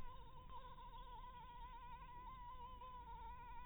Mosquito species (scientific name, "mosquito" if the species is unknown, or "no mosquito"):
Anopheles maculatus